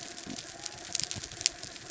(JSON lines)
{"label": "biophony", "recorder": "SoundTrap 300"}
{"label": "anthrophony, mechanical", "recorder": "SoundTrap 300"}